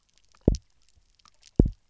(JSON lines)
{"label": "biophony, double pulse", "recorder": "SoundTrap 300"}